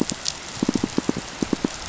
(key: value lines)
label: biophony, pulse
recorder: SoundTrap 500